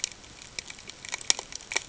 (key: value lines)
label: ambient
recorder: HydroMoth